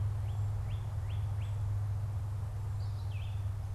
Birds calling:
Red-eyed Vireo (Vireo olivaceus)
Northern Cardinal (Cardinalis cardinalis)

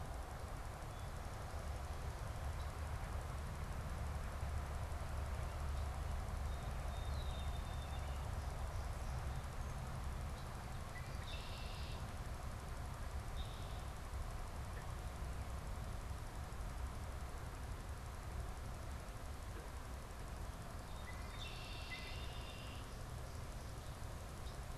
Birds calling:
Song Sparrow (Melospiza melodia)
Red-winged Blackbird (Agelaius phoeniceus)

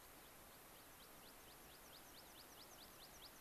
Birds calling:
American Pipit (Anthus rubescens)

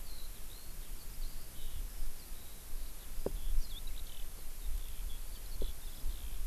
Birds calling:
Eurasian Skylark (Alauda arvensis)

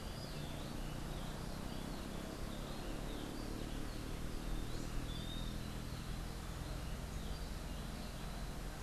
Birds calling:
Western Wood-Pewee (Contopus sordidulus)

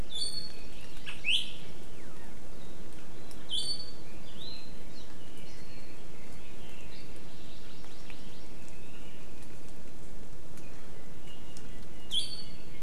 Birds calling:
Hawaii Amakihi (Chlorodrepanis virens)
Apapane (Himatione sanguinea)
Iiwi (Drepanis coccinea)
Red-billed Leiothrix (Leiothrix lutea)

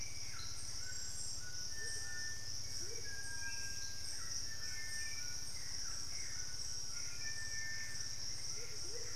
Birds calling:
Amazonian Motmot (Momotus momota)
Hauxwell's Thrush (Turdus hauxwelli)
Little Tinamou (Crypturellus soui)
Cinereous Tinamou (Crypturellus cinereus)
White-throated Toucan (Ramphastos tucanus)

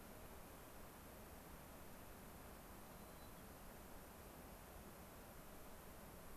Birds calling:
White-crowned Sparrow (Zonotrichia leucophrys)

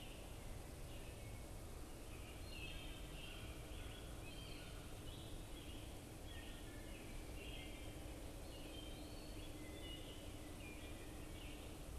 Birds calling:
American Robin (Turdus migratorius)
Wood Thrush (Hylocichla mustelina)

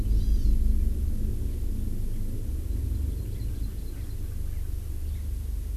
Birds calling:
Hawaii Amakihi (Chlorodrepanis virens)
Erckel's Francolin (Pternistis erckelii)

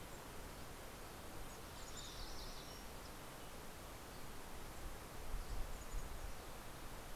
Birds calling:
MacGillivray's Warbler (Geothlypis tolmiei)
Mountain Chickadee (Poecile gambeli)

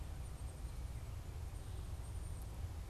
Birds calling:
Black-capped Chickadee (Poecile atricapillus)

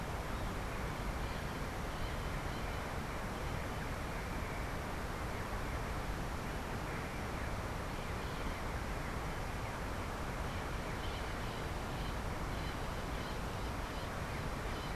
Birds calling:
Bronze-winged Parrot (Pionus chalcopterus)

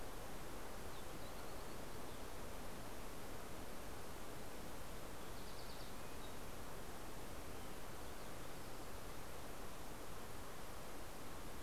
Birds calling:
Fox Sparrow (Passerella iliaca)

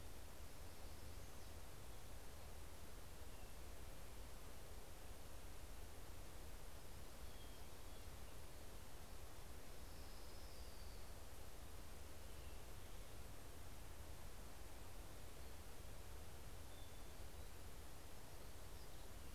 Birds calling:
Orange-crowned Warbler (Leiothlypis celata)
Hermit Thrush (Catharus guttatus)

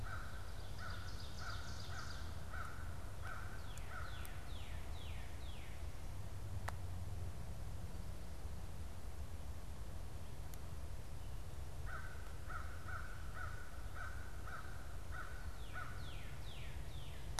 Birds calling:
American Crow (Corvus brachyrhynchos)
Northern Cardinal (Cardinalis cardinalis)

